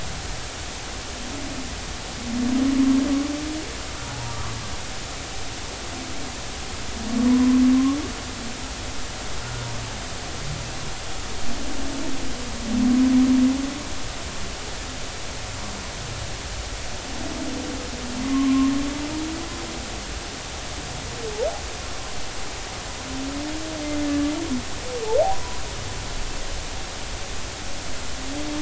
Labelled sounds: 4.1	4.5	humpback whale, 0.80 to 1.4 kHz
7.2	7.6	humpback whale, 0.96 to 1.2 kHz
18.2	18.7	humpback whale, 0.99 to 1.2 kHz
24.0	24.3	humpback whale, 1.7 to 1.8 kHz
25.3	25.6	humpback whale, 0.93 to 1.0 kHz

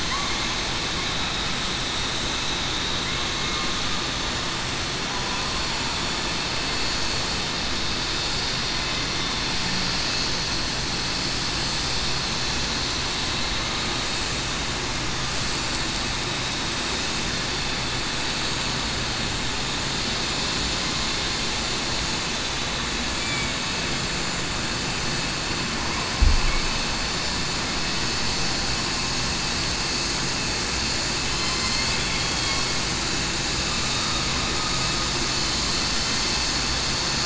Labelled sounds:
23.2	23.5	killer whale, southern resident, 2.2 to 2.4 kHz
31.2	31.6	killer whale, southern resident, 3.0 to 3.1 kHz
32.1	32.5	killer whale, southern resident, 3.3 to 3.4 kHz
33.9	34.2	killer whale, southern resident, 3.6 to 3.8 kHz

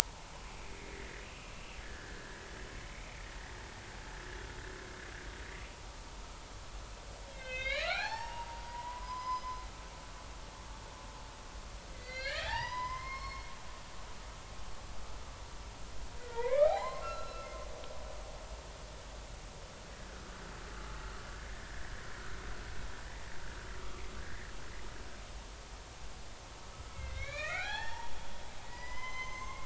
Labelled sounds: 0.6	1.2	humpback whale, 1.8 to 2.5 kHz
1.8	2.5	humpback whale, 1.4 to 2.0 kHz
7.3	9.4	humpback whale, 0.80 to 5.6 kHz
10.0	10.6	humpback whale, 4.9 to 5.1 kHz
11.9	13.5	humpback whale, 0.80 to 5.4 kHz
16.2	17.5	humpback whale, 0.80 to 4.2 kHz
21.5	21.7	humpback whale, 1.7 to 1.9 kHz
24.2	24.5	humpback whale, 1.4 to 2.2 kHz
26.9	28.1	humpback whale, 0.80 to 4.5 kHz
28.7	29.6	humpback whale, 0.93 to 6.5 kHz

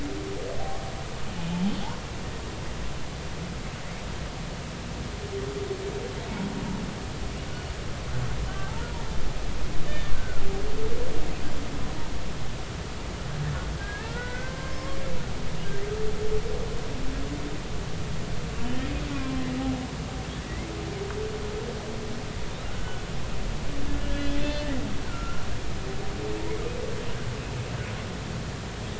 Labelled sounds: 9.9	10.4	humpback whale, 1.3 to 3.7 kHz
13.8	15.0	humpback whale, 1.0 to 2.1 kHz
19.1	19.4	humpback whale, 1.0 to 2.5 kHz
22.7	23.0	humpback whale, 1.3 to 1.5 kHz
24.0	25.4	humpback whale, 1.3 to 3.6 kHz

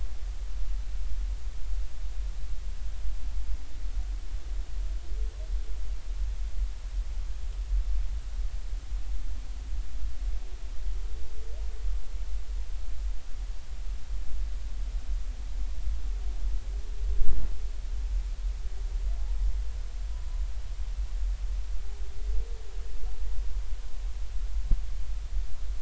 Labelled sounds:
20.1	20.4	humpback whale, 0.93 to 1.1 kHz

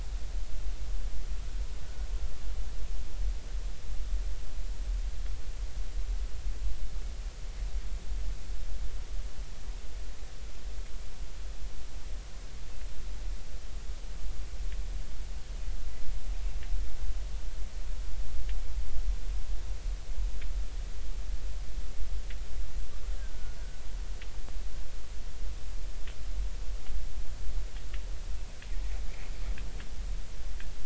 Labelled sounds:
23.2	23.6	killer whale, 1.4 to 1.7 kHz

